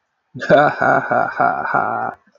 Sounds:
Laughter